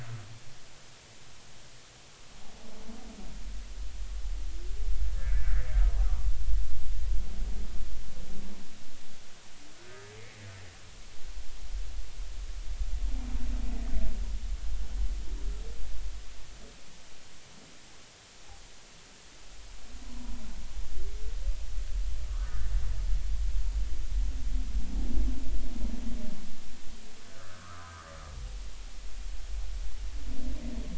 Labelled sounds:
5.1	6.3	humpback whale, 0.93 to 2.0 kHz
9.8	10.0	humpback whale, 1.4 to 1.6 kHz
22.3	22.7	humpback whale, 1.1 to 1.9 kHz
27.3	28.1	humpback whale, 0.96 to 1.8 kHz

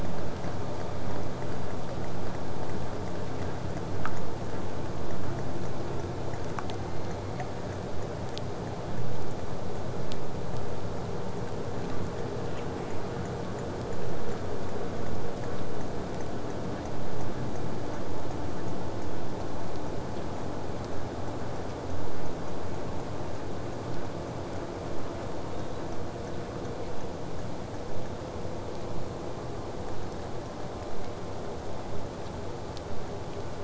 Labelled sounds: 6.8	7.5	killer whale, southern resident, J pod, 1.8 to 4.5 kHz
18.9	23.9	vessel noise, 0 to 8.0 kHz
25.5	25.9	killer whale, southern resident, 3.4 to 4.0 kHz

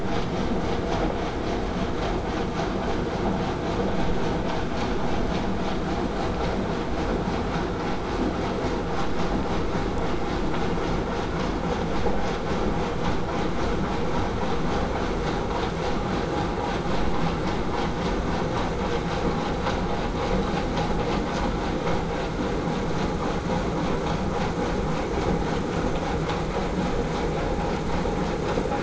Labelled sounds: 23.8	28.8	vessel noise, 0 to 8.0 kHz

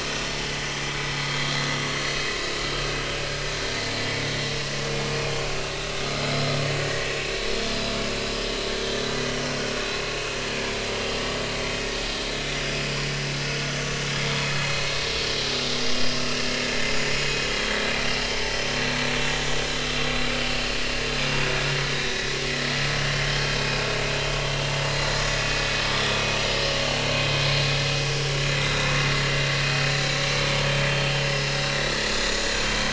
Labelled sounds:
1.8	2.3	vessel noise, 4.2 to 4.4 kHz
7.7	7.9	vessel noise, 4.8 to 5.0 kHz
16.9	17.3	vessel noise, 6.8 to 6.9 kHz
21.2	21.5	vessel noise, 4.8 to 5.1 kHz
21.9	22.2	vessel noise, 3.6 to 3.9 kHz
23.8	25.2	vessel noise, 4.0 to 4.2 kHz
28.6	28.9	vessel noise, 3.5 to 4.0 kHz
29.8	30.1	vessel noise, 6.8 to 7.0 kHz
31.3	32.5	vessel noise, 5.2 to 7.0 kHz

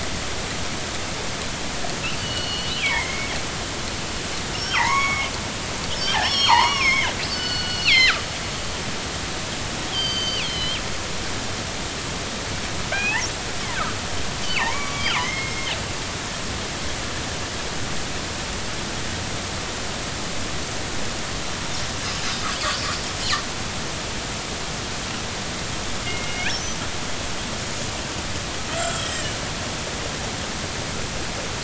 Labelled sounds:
2.2	3.3	killer whale, northern resident, G clan, 1.7 to 4.7 kHz
4.5	5.3	killer whale, northern resident, G clan, 0.80 to 5.6 kHz
5.9	8.2	killer whale, northern resident, G clan, 0.80 to 6.8 kHz
9.9	10.8	killer whale, northern resident, G clan, 2.2 to 6.3 kHz
12.9	13.9	killer whale, northern resident, G clan, 1.2 to 2.8 kHz
14.4	15.7	killer whale, northern resident, G clan, 0.80 to 6.9 kHz
26.0	26.5	killer whale, northern resident, G clan, 2.0 to 2.6 kHz
27.6	27.9	killer whale, northern resident, G clan, 6.7 to 6.8 kHz
28.7	29.4	killer whale, northern resident, G clan, 1.3 to 3.4 kHz

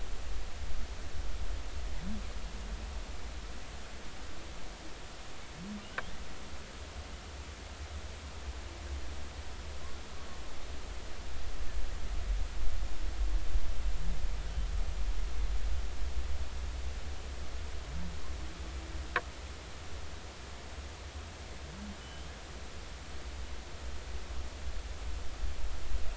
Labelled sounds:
22.0	22.3	humpback whale, 2.9 to 3.2 kHz

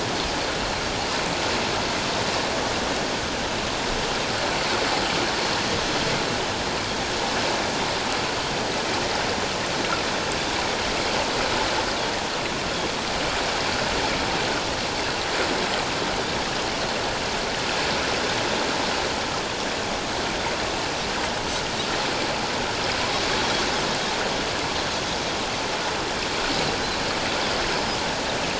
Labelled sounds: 27.7	28.0	Pacific white-sided dolphin, 4.9 to 5.2 kHz

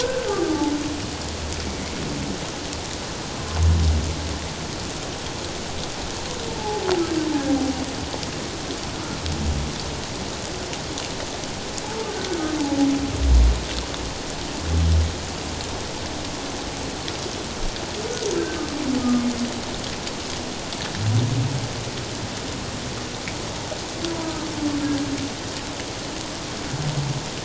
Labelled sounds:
0.0	0.7	humpback whale, 1.1 to 1.6 kHz
6.5	6.8	humpback whale, 0.78 to 0.94 kHz
24.2	24.5	humpback whale, 1.2 to 1.3 kHz

